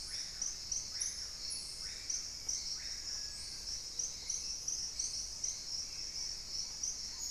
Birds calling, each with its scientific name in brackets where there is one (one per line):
Gray-fronted Dove (Leptotila rufaxilla)
Long-winged Antwren (Myrmotherula longipennis)
Black-tailed Trogon (Trogon melanurus)
Hauxwell's Thrush (Turdus hauxwelli)
Screaming Piha (Lipaugus vociferans)